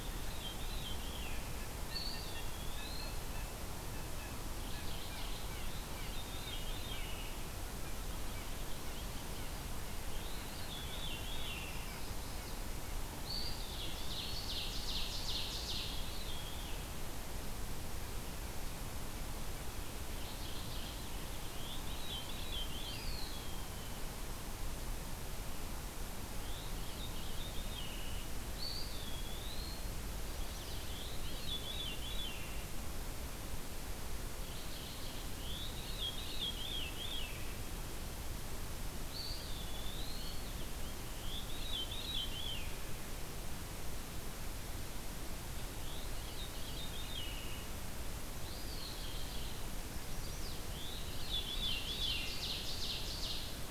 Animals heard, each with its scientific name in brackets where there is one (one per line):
Veery (Catharus fuscescens)
Ovenbird (Seiurus aurocapilla)
Chestnut-sided Warbler (Setophaga pensylvanica)
Eastern Wood-Pewee (Contopus virens)
Blue Jay (Cyanocitta cristata)
Mourning Warbler (Geothlypis philadelphia)